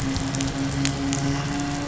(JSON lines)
{"label": "anthrophony, boat engine", "recorder": "SoundTrap 500"}